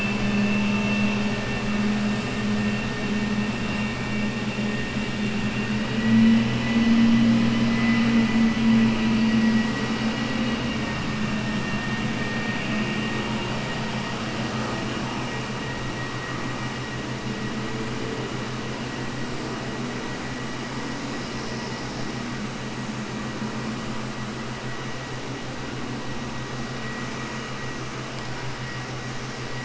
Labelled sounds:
5.6	6.5	vessel noise, 1.9 to 3.9 kHz

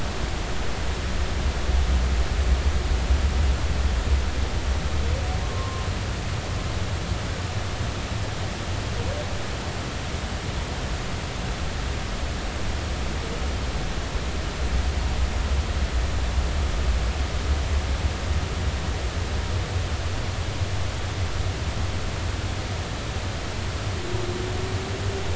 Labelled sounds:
5.4	5.9	humpback whale, 0.99 to 1.2 kHz

